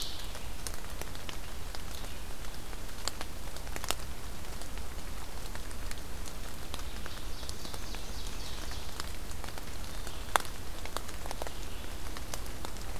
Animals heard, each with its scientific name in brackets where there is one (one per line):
Red-eyed Vireo (Vireo olivaceus)
Ovenbird (Seiurus aurocapilla)